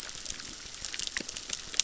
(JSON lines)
{"label": "biophony, crackle", "recorder": "SoundTrap 600"}